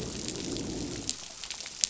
{"label": "biophony, growl", "recorder": "SoundTrap 500"}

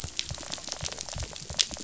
{"label": "biophony, rattle", "recorder": "SoundTrap 500"}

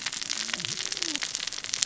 {"label": "biophony, cascading saw", "recorder": "SoundTrap 600 or HydroMoth"}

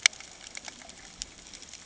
{"label": "ambient", "recorder": "HydroMoth"}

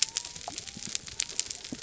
{"label": "biophony", "recorder": "SoundTrap 300"}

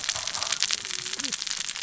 {"label": "biophony, cascading saw", "recorder": "SoundTrap 600 or HydroMoth"}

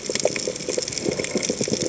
{"label": "biophony", "recorder": "HydroMoth"}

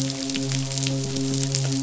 {"label": "biophony, midshipman", "recorder": "SoundTrap 500"}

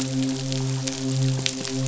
{"label": "biophony, midshipman", "recorder": "SoundTrap 500"}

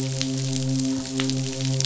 {"label": "biophony, midshipman", "recorder": "SoundTrap 500"}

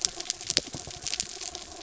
{"label": "anthrophony, mechanical", "recorder": "SoundTrap 300"}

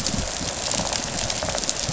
{"label": "biophony, rattle response", "recorder": "SoundTrap 500"}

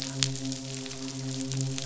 {"label": "biophony, midshipman", "recorder": "SoundTrap 500"}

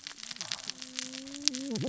{"label": "biophony, cascading saw", "recorder": "SoundTrap 600 or HydroMoth"}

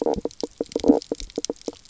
{"label": "biophony, knock croak", "recorder": "SoundTrap 300"}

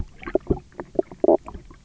{"label": "biophony, knock croak", "recorder": "SoundTrap 300"}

